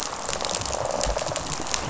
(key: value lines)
label: biophony, rattle response
recorder: SoundTrap 500